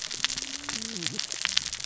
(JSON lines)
{"label": "biophony, cascading saw", "recorder": "SoundTrap 600 or HydroMoth"}